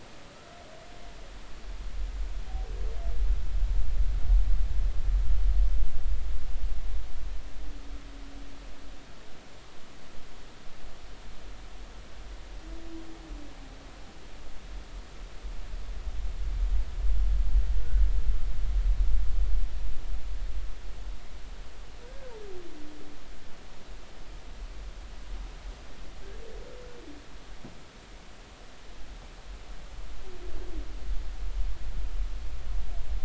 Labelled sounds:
22.0	22.3	humpback whale, 1.4 to 1.7 kHz

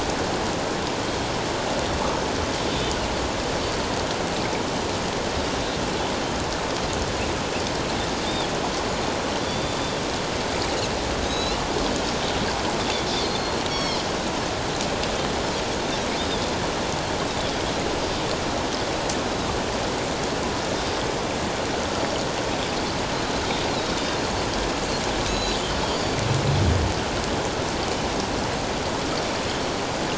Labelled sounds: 9.4	10.0	Pacific white-sided dolphin, 3.4 to 4.8 kHz
11.2	11.6	Pacific white-sided dolphin, 3.7 to 6.8 kHz
13.2	14.0	Pacific white-sided dolphin, 2.1 to 5.6 kHz
16.2	16.5	Pacific white-sided dolphin, 3.3 to 3.8 kHz
25.2	26.1	Pacific white-sided dolphin, 3.8 to 6.8 kHz

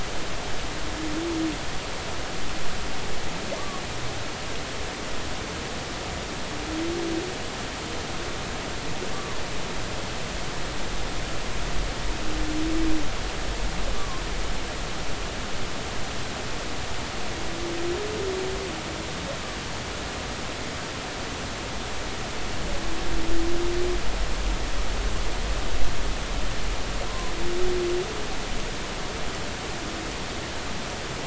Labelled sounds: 3.6	3.8	humpback whale, 1.1 to 1.2 kHz
9.1	9.4	humpback whale, 1.0 to 1.2 kHz
13.9	14.2	humpback whale, 0.99 to 1.2 kHz
27.1	27.3	humpback whale, 0.96 to 1.1 kHz

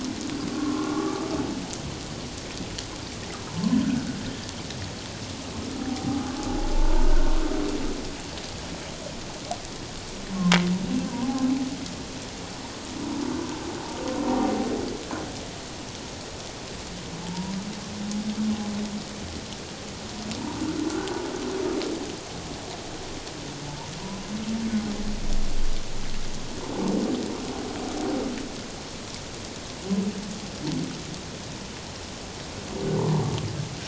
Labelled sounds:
0.5	1.3	humpback whale, 1.0 to 1.3 kHz
5.8	6.3	humpback whale, 0.78 to 0.88 kHz
7.0	7.3	humpback whale, 1.3 to 1.6 kHz
17.2	17.5	humpback whale, 0.84 to 1.0 kHz
20.9	21.2	humpback whale, 1.3 to 1.6 kHz
33.0	33.2	humpback whale, 0.88 to 1.1 kHz

